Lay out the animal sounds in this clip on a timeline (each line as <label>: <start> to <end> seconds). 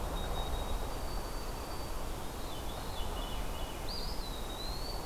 White-throated Sparrow (Zonotrichia albicollis): 0.0 to 2.3 seconds
Veery (Catharus fuscescens): 2.3 to 4.0 seconds
Eastern Wood-Pewee (Contopus virens): 3.8 to 5.1 seconds